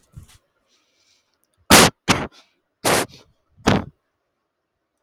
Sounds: Sneeze